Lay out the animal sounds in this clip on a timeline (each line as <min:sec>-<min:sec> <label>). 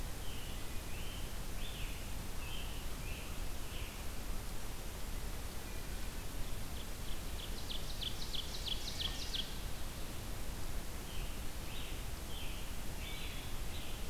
0:00.0-0:04.1 Scarlet Tanager (Piranga olivacea)
0:05.6-0:06.4 Wood Thrush (Hylocichla mustelina)
0:06.5-0:09.8 Ovenbird (Seiurus aurocapilla)
0:08.7-0:09.7 Wood Thrush (Hylocichla mustelina)
0:10.9-0:14.1 Scarlet Tanager (Piranga olivacea)